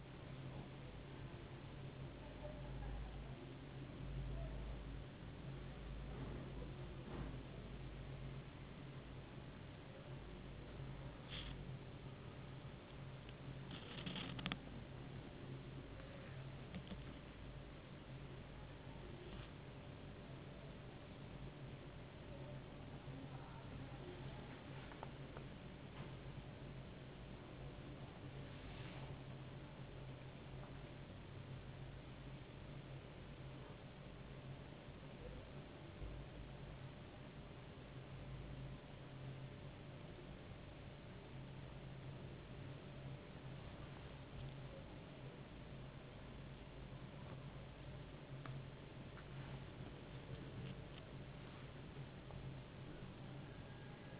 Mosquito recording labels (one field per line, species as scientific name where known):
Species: no mosquito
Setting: insect culture